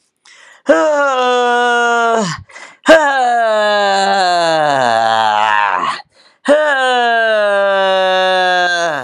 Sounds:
Sigh